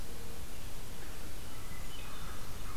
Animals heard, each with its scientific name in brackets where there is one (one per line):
American Crow (Corvus brachyrhynchos)
Hermit Thrush (Catharus guttatus)